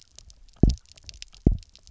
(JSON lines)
{"label": "biophony, double pulse", "recorder": "SoundTrap 300"}